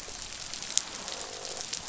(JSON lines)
{"label": "biophony, croak", "recorder": "SoundTrap 500"}